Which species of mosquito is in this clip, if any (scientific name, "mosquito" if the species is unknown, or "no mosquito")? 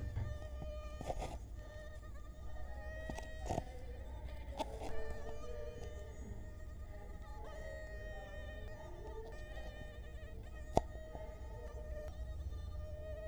Culex quinquefasciatus